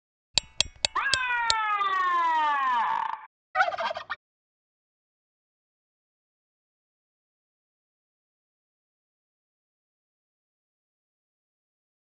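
First ticking can be heard. While that goes on, you can hear a siren. Finally, the sound of fowl is audible.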